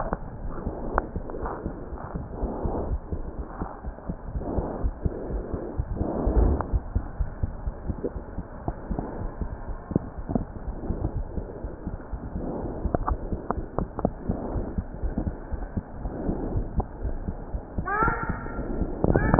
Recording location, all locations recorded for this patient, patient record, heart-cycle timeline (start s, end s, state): aortic valve (AV)
aortic valve (AV)+pulmonary valve (PV)+tricuspid valve (TV)+mitral valve (MV)
#Age: Child
#Sex: Female
#Height: 106.0 cm
#Weight: 20.5 kg
#Pregnancy status: False
#Murmur: Absent
#Murmur locations: nan
#Most audible location: nan
#Systolic murmur timing: nan
#Systolic murmur shape: nan
#Systolic murmur grading: nan
#Systolic murmur pitch: nan
#Systolic murmur quality: nan
#Diastolic murmur timing: nan
#Diastolic murmur shape: nan
#Diastolic murmur grading: nan
#Diastolic murmur pitch: nan
#Diastolic murmur quality: nan
#Outcome: Normal
#Campaign: 2015 screening campaign
0.00	8.15	unannotated
8.15	8.22	S1
8.22	8.36	systole
8.36	8.46	S2
8.46	8.66	diastole
8.66	8.76	S1
8.76	8.88	systole
8.88	9.00	S2
9.00	9.18	diastole
9.18	9.32	S1
9.32	9.40	systole
9.40	9.52	S2
9.52	9.68	diastole
9.68	9.77	S1
9.77	9.92	systole
9.92	10.00	S2
10.00	10.18	diastole
10.18	10.26	S1
10.26	10.36	systole
10.36	10.46	S2
10.46	10.66	diastole
10.66	10.76	S1
10.76	10.84	systole
10.84	10.98	S2
10.98	11.14	diastole
11.14	11.28	S1
11.28	11.36	systole
11.36	11.46	S2
11.46	11.62	diastole
11.62	11.72	S1
11.72	11.84	systole
11.84	11.94	S2
11.94	12.12	diastole
12.12	12.24	S1
12.24	12.34	systole
12.34	12.44	S2
12.44	12.60	diastole
12.60	12.72	S1
12.72	12.82	systole
12.82	12.92	S2
12.92	13.08	diastole
13.08	13.22	S1
13.22	13.30	systole
13.30	13.40	S2
13.40	13.56	diastole
13.56	13.68	S1
13.68	13.78	systole
13.78	13.90	S2
13.90	14.06	diastole
14.06	14.16	S1
14.16	14.26	systole
14.26	14.36	S2
14.36	14.54	diastole
14.54	14.66	S1
14.66	14.76	systole
14.76	14.88	S2
14.88	15.02	diastole
15.02	15.16	S1
15.16	15.24	systole
15.24	15.36	S2
15.36	15.50	diastole
15.50	15.64	S1
15.64	15.74	systole
15.74	15.84	S2
15.84	16.02	diastole
16.02	16.14	S1
16.14	16.26	systole
16.26	16.38	S2
16.38	16.52	diastole
16.52	16.68	S1
16.68	16.76	systole
16.76	16.88	S2
16.88	17.04	diastole
17.04	17.18	S1
17.18	17.26	systole
17.26	17.36	S2
17.36	17.52	diastole
17.52	17.62	S1
17.62	17.76	systole
17.76	17.88	S2
17.88	18.02	diastole
18.02	18.18	S1
18.18	18.30	systole
18.30	18.40	S2
18.40	18.56	diastole
18.56	18.66	S1
18.66	18.78	systole
18.78	18.90	S2
18.90	19.03	diastole
19.03	19.39	unannotated